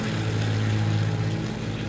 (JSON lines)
{"label": "anthrophony, boat engine", "recorder": "SoundTrap 500"}